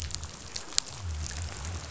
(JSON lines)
{"label": "biophony", "recorder": "SoundTrap 500"}